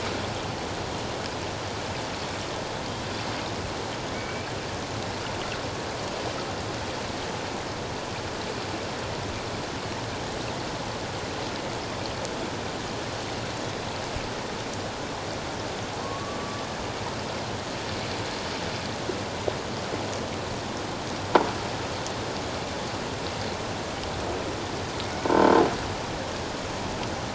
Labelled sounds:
4.1	4.5	killer whale, Bigg's (transient), 2.2 to 2.4 kHz
16.0	16.6	killer whale, Bigg's (transient), 1.0 to 1.2 kHz
25.2	25.5	croaking sound likely from a nearby submerged object, 0.88 to 0.94 kHz

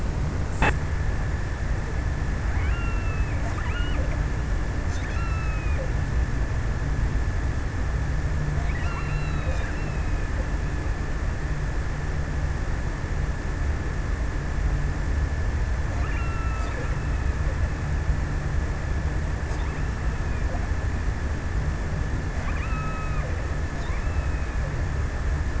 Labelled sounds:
1.8	6.7	killer whale, offshore, 1.0 to 3.3 kHz
8.5	10.2	killer whale, offshore, 0.96 to 2.9 kHz
15.2	17.2	killer whale, offshore, 1.0 to 3.1 kHz
22.1	23.6	killer whale, offshore, 0.93 to 2.9 kHz

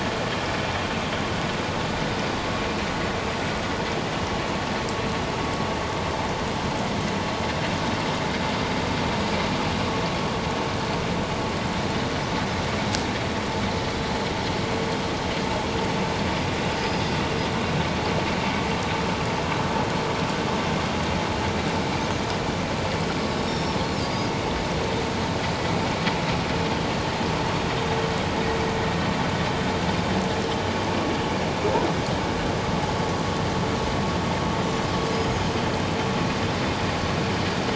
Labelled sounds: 16.8	17.0	Pacific white-sided dolphin, 4.8 to 5.1 kHz
23.3	23.8	Pacific white-sided dolphin, 5.1 to 5.6 kHz
35.1	35.4	Pacific white-sided dolphin, 6.5 to 6.8 kHz

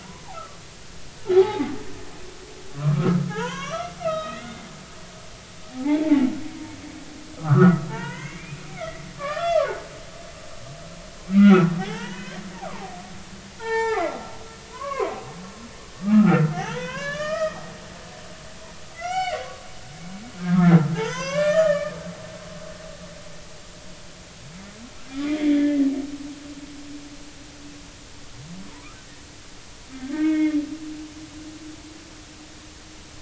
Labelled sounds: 0.3	1.7	humpback whale, 0.80 to 1.4 kHz
2.7	4.7	humpback whale, 0.80 to 5.2 kHz
5.7	6.2	humpback whale, 0.80 to 2.4 kHz
7.4	9.7	humpback whale, 0.83 to 5.5 kHz
11.2	13.0	humpback whale, 0.80 to 3.4 kHz
13.6	14.1	humpback whale, 0.80 to 4.1 kHz
14.7	15.1	humpback whale, 0.93 to 2.3 kHz
16.0	17.6	humpback whale, 0.80 to 6.3 kHz
18.9	19.4	humpback whale, 0.80 to 4.6 kHz
20.5	22.0	humpback whale, 0.80 to 5.2 kHz
25.4	25.9	humpback whale, 1.7 to 2.1 kHz
28.7	29.0	humpback whale, 0.86 to 1.4 kHz
29.9	30.6	humpback whale, 1.5 to 3.5 kHz

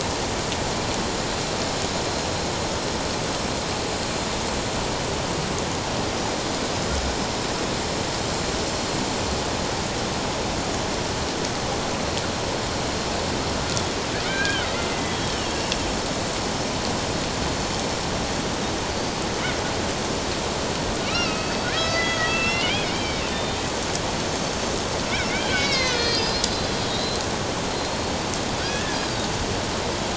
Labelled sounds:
14.2	15.7	killer whale, Bigg's (transient), 1.4 to 3.3 kHz
21.1	23.6	killer whale, Bigg's (transient), 1.2 to 5.4 kHz
25.3	27.2	killer whale, Bigg's (transient), 1.7 to 5.7 kHz
27.7	29.0	killer whale, Bigg's (transient), 1.4 to 4.5 kHz

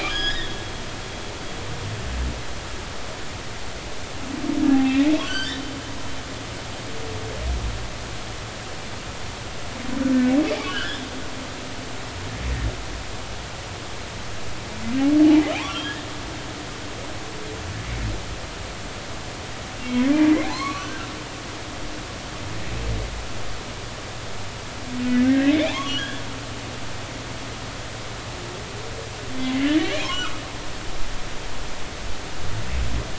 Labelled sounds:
0.0	0.5	humpback whale, 1.6 to 6.8 kHz
1.3	1.6	humpback whale, 3.3 to 3.8 kHz
4.7	5.6	humpback whale, 0.80 to 4.8 kHz
10.6	11.1	humpback whale, 1.3 to 3.7 kHz
15.5	15.8	humpback whale, 0.80 to 1.2 kHz
19.8	21.1	humpback whale, 0.80 to 2.3 kHz
25.2	26.2	humpback whale, 0.80 to 3.5 kHz
30.1	30.3	humpback whale, 1.2 to 1.5 kHz

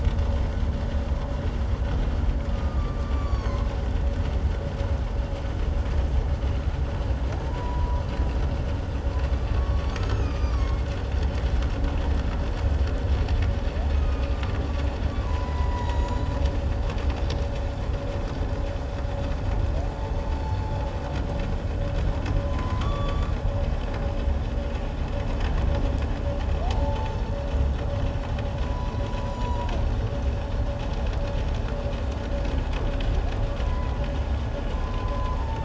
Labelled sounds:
2.5	3.7	humpback whale, 0.97 to 7.1 kHz
7.5	8.0	humpback whale, 0.88 to 1.1 kHz
9.5	10.9	humpback whale, 1.0 to 6.6 kHz
13.9	14.6	humpback whale, 1.1 to 2.6 kHz
15.1	16.4	humpback whale, 0.81 to 7.9 kHz
20.3	20.7	humpback whale, 4.3 to 4.5 kHz
22.4	23.4	humpback whale, 0.97 to 7.1 kHz
26.7	27.2	humpback whale, 0.78 to 0.94 kHz
28.6	29.7	humpback whale, 0.88 to 6.9 kHz
33.6	34.0	humpback whale, 0.94 to 2.2 kHz
34.7	35.6	humpback whale, 0.84 to 1.1 kHz

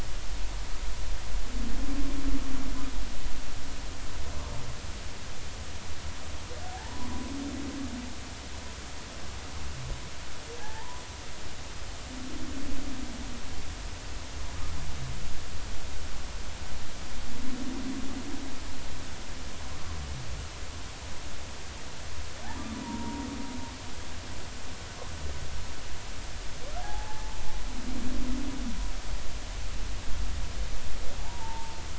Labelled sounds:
6.7	7.3	humpback whale, 0.80 to 1.2 kHz
10.6	11.0	humpback whale, 0.80 to 1.1 kHz
22.8	23.3	humpback whale, 0.90 to 0.99 kHz
26.8	27.4	humpback whale, 0.80 to 1.0 kHz
31.2	31.8	humpback whale, 0.80 to 1.0 kHz

